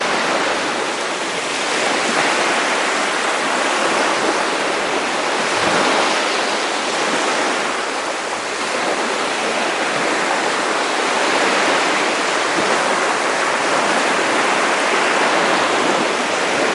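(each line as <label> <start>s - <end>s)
Waves hitting the beach. 0.0s - 16.7s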